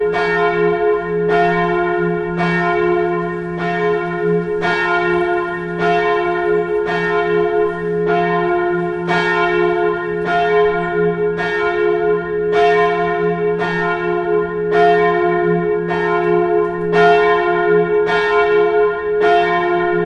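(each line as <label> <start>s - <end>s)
A bell rings clearly and repeatedly. 0.0s - 20.0s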